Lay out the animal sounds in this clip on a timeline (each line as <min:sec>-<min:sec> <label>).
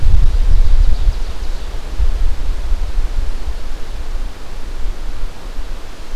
0:00.0-0:01.8 Ovenbird (Seiurus aurocapilla)